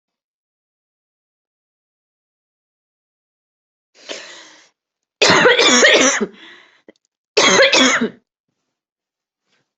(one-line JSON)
{"expert_labels": [{"quality": "good", "cough_type": "dry", "dyspnea": false, "wheezing": false, "stridor": false, "choking": false, "congestion": false, "nothing": true, "diagnosis": "COVID-19", "severity": "mild"}], "age": 32, "gender": "female", "respiratory_condition": false, "fever_muscle_pain": false, "status": "healthy"}